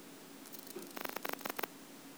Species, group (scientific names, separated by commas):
Anelytra tristellata, Orthoptera